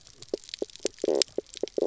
{"label": "biophony, knock croak", "recorder": "SoundTrap 300"}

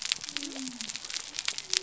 {"label": "biophony", "recorder": "SoundTrap 300"}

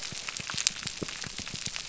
{"label": "biophony", "recorder": "SoundTrap 300"}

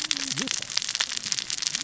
{"label": "biophony, cascading saw", "recorder": "SoundTrap 600 or HydroMoth"}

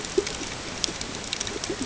{"label": "ambient", "recorder": "HydroMoth"}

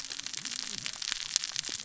{"label": "biophony, cascading saw", "recorder": "SoundTrap 600 or HydroMoth"}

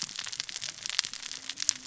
{"label": "biophony, cascading saw", "recorder": "SoundTrap 600 or HydroMoth"}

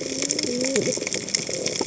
{"label": "biophony, cascading saw", "recorder": "HydroMoth"}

